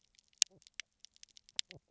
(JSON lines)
{"label": "biophony, knock croak", "recorder": "SoundTrap 300"}